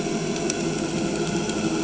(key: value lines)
label: anthrophony, boat engine
recorder: HydroMoth